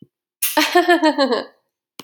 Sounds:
Laughter